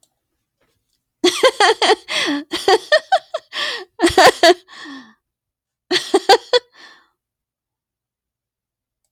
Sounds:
Laughter